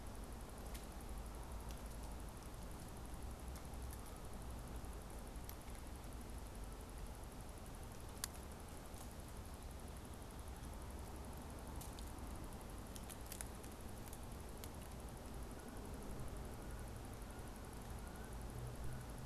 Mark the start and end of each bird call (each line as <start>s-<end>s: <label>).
15.5s-19.2s: Canada Goose (Branta canadensis)